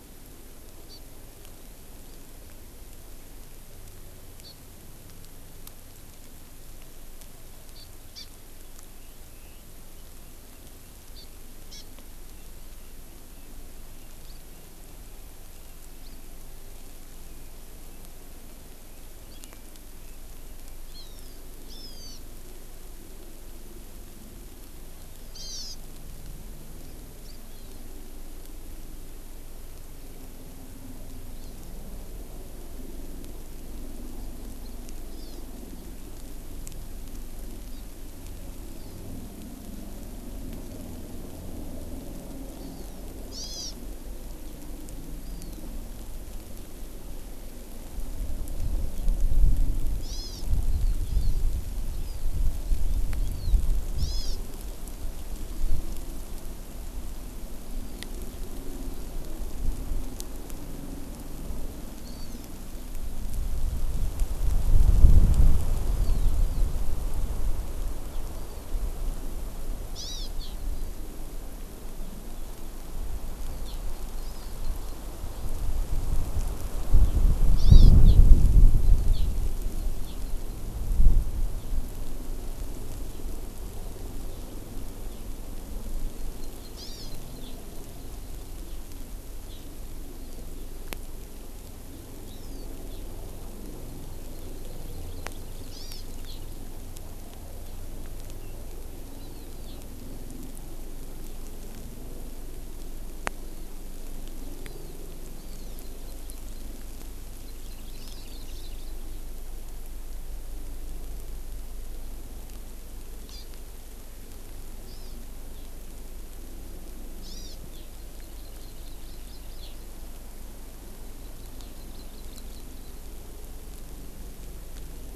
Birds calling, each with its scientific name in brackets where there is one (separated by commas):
Hawaiian Hawk (Buteo solitarius), Hawaii Amakihi (Chlorodrepanis virens), Red-billed Leiothrix (Leiothrix lutea)